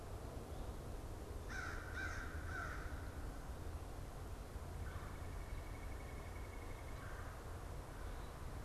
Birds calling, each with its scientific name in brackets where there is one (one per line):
American Crow (Corvus brachyrhynchos)
Red-bellied Woodpecker (Melanerpes carolinus)
unidentified bird